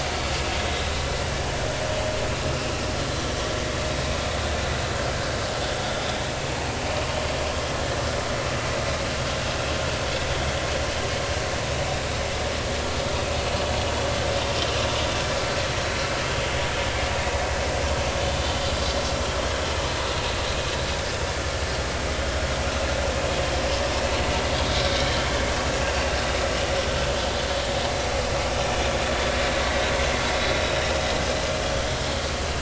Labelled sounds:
0.6	0.9	vessel noise, 3.7 to 4.0 kHz
28.6	28.9	vessel noise, 2.3 to 2.5 kHz

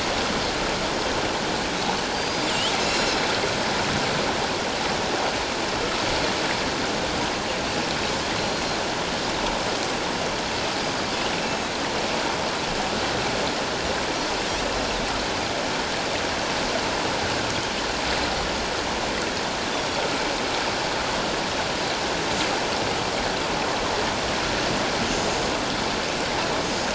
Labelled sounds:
2.1	3.2	Pacific white-sided dolphin, 3.9 to 6.9 kHz
8.4	8.8	Pacific white-sided dolphin, 4.0 to 5.8 kHz
11.4	11.7	Pacific white-sided dolphin, 2.5 to 6.7 kHz

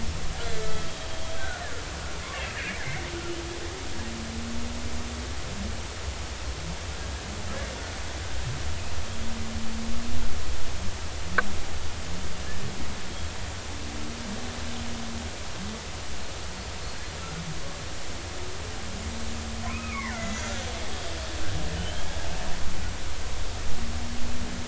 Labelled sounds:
0.4	1.7	killer whale, Bigg's (transient), 1.3 to 3.3 kHz
2.8	3.0	killer whale, Bigg's (transient), 2.0 to 2.3 kHz
19.7	20.4	killer whale, Bigg's (transient), 0.90 to 6.9 kHz

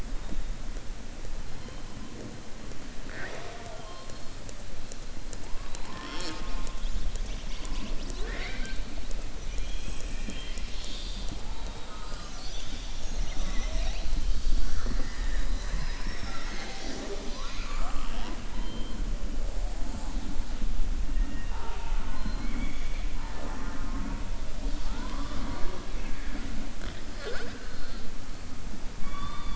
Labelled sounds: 25.9	26.5	killer whale, southern resident, 0.75 to 2.9 kHz

